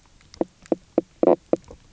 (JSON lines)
{"label": "biophony, knock croak", "recorder": "SoundTrap 300"}